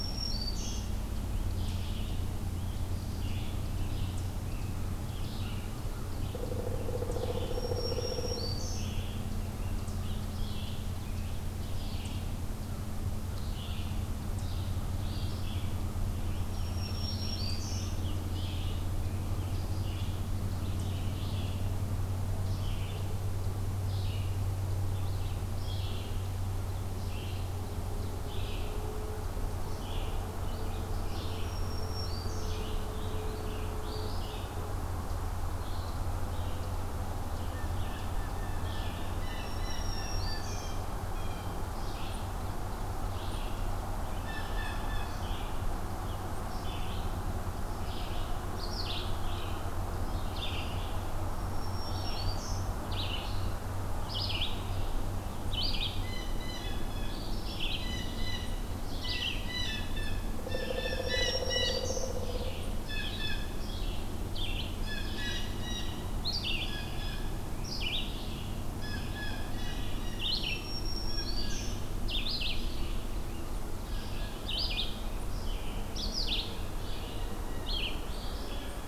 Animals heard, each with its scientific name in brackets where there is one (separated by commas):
Pileated Woodpecker (Dryocopus pileatus), Red-eyed Vireo (Vireo olivaceus), Blue Jay (Cyanocitta cristata), Black-throated Green Warbler (Setophaga virens)